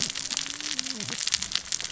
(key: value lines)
label: biophony, cascading saw
recorder: SoundTrap 600 or HydroMoth